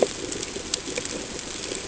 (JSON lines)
{"label": "ambient", "recorder": "HydroMoth"}